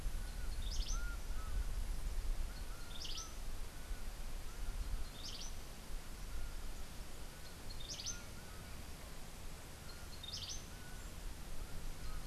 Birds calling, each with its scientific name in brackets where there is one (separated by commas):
Cabanis's Wren (Cantorchilus modestus), Laughing Falcon (Herpetotheres cachinnans)